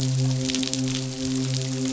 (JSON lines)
{"label": "biophony, midshipman", "recorder": "SoundTrap 500"}